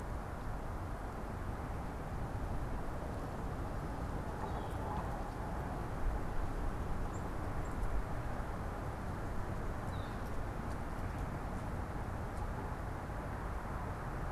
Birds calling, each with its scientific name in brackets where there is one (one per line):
Black-capped Chickadee (Poecile atricapillus)
Northern Flicker (Colaptes auratus)